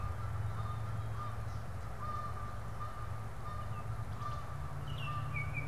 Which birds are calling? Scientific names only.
Branta canadensis, Icterus galbula